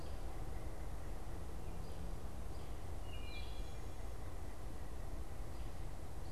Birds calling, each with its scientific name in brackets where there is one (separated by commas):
American Robin (Turdus migratorius), Wood Thrush (Hylocichla mustelina)